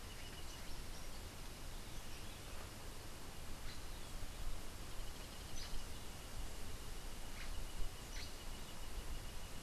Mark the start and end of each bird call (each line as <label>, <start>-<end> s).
Hoffmann's Woodpecker (Melanerpes hoffmannii), 4.8-5.9 s
Black-headed Saltator (Saltator atriceps), 7.3-8.4 s